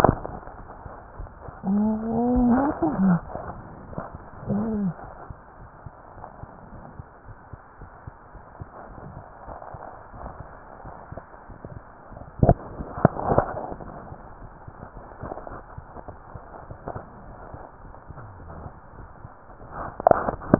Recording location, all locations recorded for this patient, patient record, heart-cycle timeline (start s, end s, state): mitral valve (MV)
aortic valve (AV)+pulmonary valve (PV)+tricuspid valve (TV)+mitral valve (MV)
#Age: Child
#Sex: Female
#Height: 133.0 cm
#Weight: 28.8 kg
#Pregnancy status: False
#Murmur: Absent
#Murmur locations: nan
#Most audible location: nan
#Systolic murmur timing: nan
#Systolic murmur shape: nan
#Systolic murmur grading: nan
#Systolic murmur pitch: nan
#Systolic murmur quality: nan
#Diastolic murmur timing: nan
#Diastolic murmur shape: nan
#Diastolic murmur grading: nan
#Diastolic murmur pitch: nan
#Diastolic murmur quality: nan
#Outcome: Abnormal
#Campaign: 2015 screening campaign
0.00	5.38	unannotated
5.38	5.58	diastole
5.58	5.70	S1
5.70	5.82	systole
5.82	5.94	S2
5.94	6.14	diastole
6.14	6.24	S1
6.24	6.36	systole
6.36	6.50	S2
6.50	6.70	diastole
6.70	6.82	S1
6.82	6.96	systole
6.96	7.06	S2
7.06	7.28	diastole
7.28	7.38	S1
7.38	7.50	systole
7.50	7.60	S2
7.60	7.80	diastole
7.80	7.90	S1
7.90	8.00	systole
8.00	8.12	S2
8.12	8.32	diastole
8.32	8.42	S1
8.42	8.56	systole
8.56	8.68	S2
8.68	8.90	diastole
8.90	9.02	S1
9.02	9.14	systole
9.14	9.24	S2
9.24	9.46	diastole
9.46	9.60	S1
9.60	9.72	systole
9.72	9.82	S2
9.82	10.00	diastole
10.00	20.59	unannotated